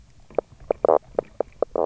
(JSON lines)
{"label": "biophony, knock croak", "recorder": "SoundTrap 300"}